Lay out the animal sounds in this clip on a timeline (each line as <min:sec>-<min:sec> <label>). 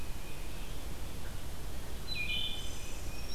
0:02.0-0:03.3 Wood Thrush (Hylocichla mustelina)